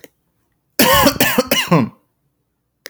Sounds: Cough